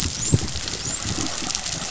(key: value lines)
label: biophony, dolphin
recorder: SoundTrap 500